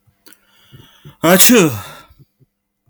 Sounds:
Sneeze